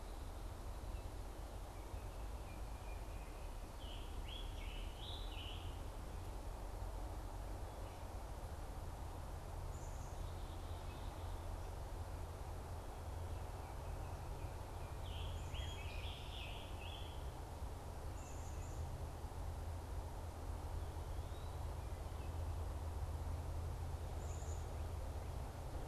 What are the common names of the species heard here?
Scarlet Tanager, Black-capped Chickadee